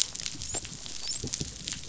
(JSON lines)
{"label": "biophony, dolphin", "recorder": "SoundTrap 500"}